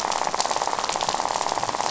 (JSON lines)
{"label": "biophony, rattle", "recorder": "SoundTrap 500"}